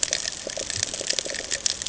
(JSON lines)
{"label": "ambient", "recorder": "HydroMoth"}